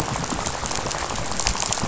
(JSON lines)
{"label": "biophony, rattle", "recorder": "SoundTrap 500"}